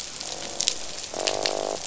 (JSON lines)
{"label": "biophony, croak", "recorder": "SoundTrap 500"}